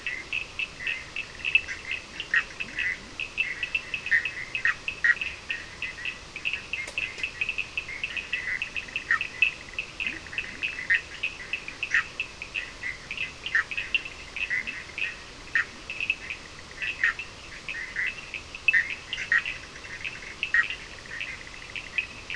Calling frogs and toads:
Cochran's lime tree frog (Sphaenorhynchus surdus), Bischoff's tree frog (Boana bischoffi), Leptodactylus latrans
3:00am

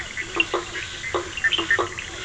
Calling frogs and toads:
blacksmith tree frog (Boana faber), Bischoff's tree frog (Boana bischoffi)
9:00pm

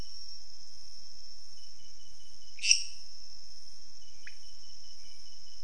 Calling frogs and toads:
lesser tree frog (Dendropsophus minutus), pointedbelly frog (Leptodactylus podicipinus)
4:00am

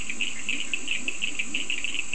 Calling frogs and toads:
Leptodactylus latrans, Cochran's lime tree frog (Sphaenorhynchus surdus)
4:15am

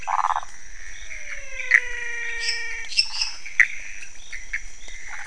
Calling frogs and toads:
waxy monkey tree frog (Phyllomedusa sauvagii), pointedbelly frog (Leptodactylus podicipinus), Pithecopus azureus, menwig frog (Physalaemus albonotatus), lesser tree frog (Dendropsophus minutus)
1:00am

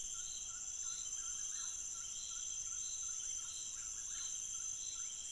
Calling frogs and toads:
rufous frog (Leptodactylus fuscus)
2:00am

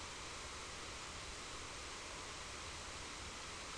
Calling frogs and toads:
none
6:30pm

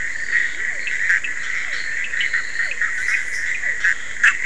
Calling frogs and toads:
Bischoff's tree frog (Boana bischoffi), Physalaemus cuvieri, fine-lined tree frog (Boana leptolineata)
12:30am

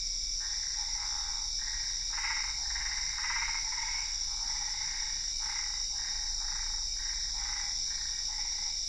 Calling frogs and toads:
Boana albopunctata
9:45pm

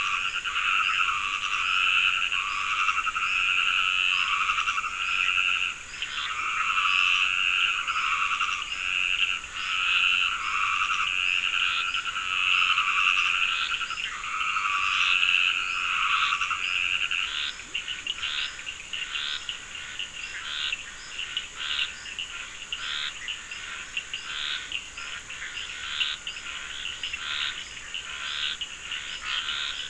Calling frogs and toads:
Dendropsophus nahdereri, Scinax perereca, Bischoff's tree frog (Boana bischoffi), Leptodactylus latrans, Cochran's lime tree frog (Sphaenorhynchus surdus)
9:30pm

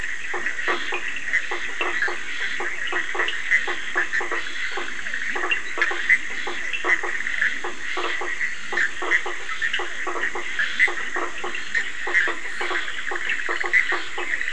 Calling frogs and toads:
Scinax perereca, blacksmith tree frog (Boana faber), Physalaemus cuvieri, Bischoff's tree frog (Boana bischoffi), Cochran's lime tree frog (Sphaenorhynchus surdus), Leptodactylus latrans
10:30pm

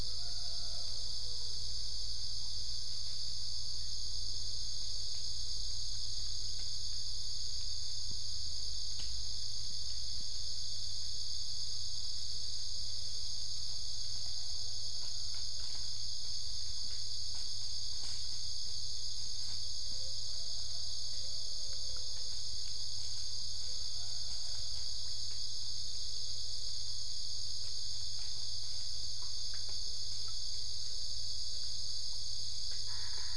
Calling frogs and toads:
Boana albopunctata
5:00am

